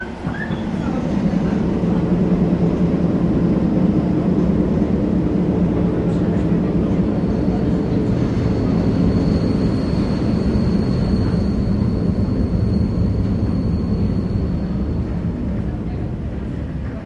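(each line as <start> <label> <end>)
0.0 Metal clanking from slow-moving train wheels, brake squeals, and background passenger conversations. 17.0
0.1 Clanking wheels of a slow-moving train with faint passenger voices. 3.3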